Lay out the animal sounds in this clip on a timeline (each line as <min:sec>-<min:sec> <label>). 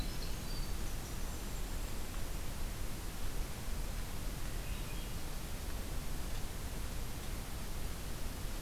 0:00.0-0:02.0 Winter Wren (Troglodytes hiemalis)
0:00.5-0:02.3 Golden-crowned Kinglet (Regulus satrapa)
0:04.0-0:05.3 Swainson's Thrush (Catharus ustulatus)